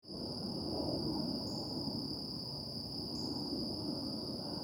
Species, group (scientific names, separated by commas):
Anaxipha vernalis, Orthoptera